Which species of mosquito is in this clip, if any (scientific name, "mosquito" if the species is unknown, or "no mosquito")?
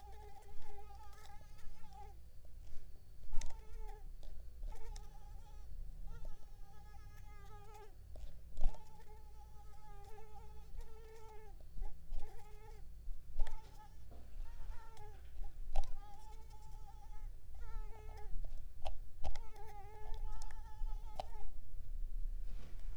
Mansonia uniformis